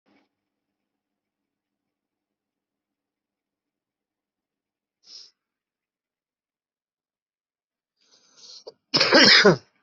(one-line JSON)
{"expert_labels": [{"quality": "ok", "cough_type": "unknown", "dyspnea": false, "wheezing": false, "stridor": false, "choking": false, "congestion": false, "nothing": true, "diagnosis": "healthy cough", "severity": "pseudocough/healthy cough"}, {"quality": "good", "cough_type": "dry", "dyspnea": false, "wheezing": false, "stridor": false, "choking": false, "congestion": true, "nothing": false, "diagnosis": "upper respiratory tract infection", "severity": "pseudocough/healthy cough"}, {"quality": "good", "cough_type": "unknown", "dyspnea": false, "wheezing": false, "stridor": false, "choking": false, "congestion": false, "nothing": true, "diagnosis": "healthy cough", "severity": "pseudocough/healthy cough"}, {"quality": "good", "cough_type": "wet", "dyspnea": false, "wheezing": false, "stridor": false, "choking": false, "congestion": true, "nothing": false, "diagnosis": "lower respiratory tract infection", "severity": "unknown"}]}